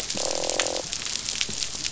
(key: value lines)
label: biophony, croak
recorder: SoundTrap 500